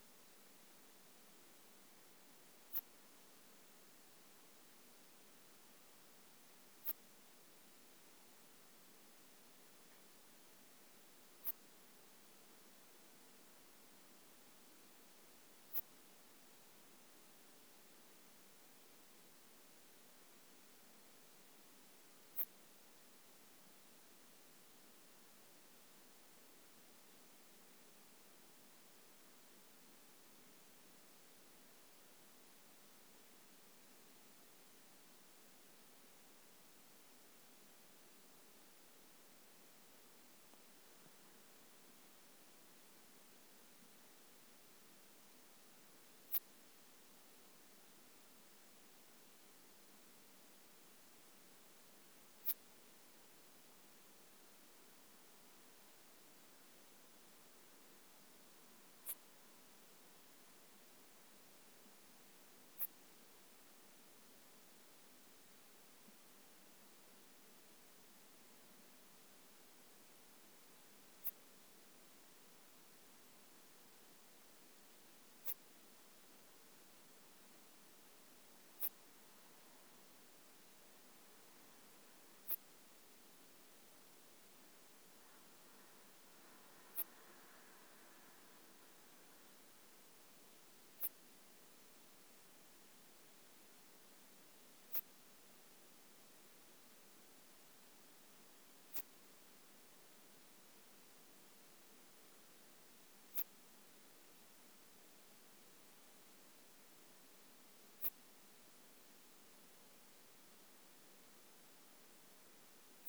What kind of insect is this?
orthopteran